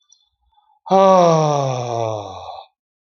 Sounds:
Sigh